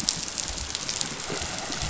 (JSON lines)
{"label": "biophony", "recorder": "SoundTrap 500"}